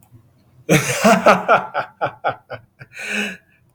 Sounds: Laughter